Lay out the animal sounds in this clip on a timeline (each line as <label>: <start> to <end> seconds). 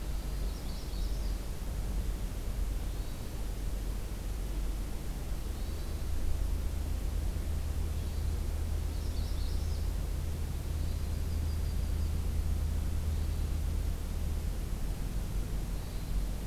Hermit Thrush (Catharus guttatus): 0.0 to 0.5 seconds
Magnolia Warbler (Setophaga magnolia): 0.4 to 1.4 seconds
Hermit Thrush (Catharus guttatus): 2.7 to 3.4 seconds
Hermit Thrush (Catharus guttatus): 5.4 to 5.9 seconds
Hermit Thrush (Catharus guttatus): 7.9 to 8.5 seconds
Magnolia Warbler (Setophaga magnolia): 8.8 to 9.9 seconds
Hermit Thrush (Catharus guttatus): 10.5 to 11.2 seconds
Yellow-rumped Warbler (Setophaga coronata): 10.7 to 12.3 seconds
Hermit Thrush (Catharus guttatus): 13.1 to 13.6 seconds
Hermit Thrush (Catharus guttatus): 15.7 to 16.3 seconds